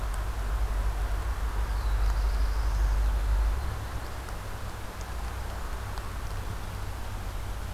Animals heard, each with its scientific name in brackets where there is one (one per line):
Black-throated Blue Warbler (Setophaga caerulescens)